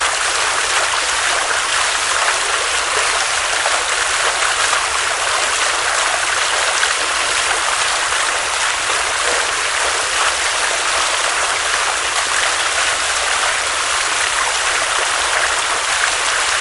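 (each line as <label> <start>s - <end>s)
A gentle waterfall and a serene stream flow effortlessly in a calm natural environment. 0.0s - 16.6s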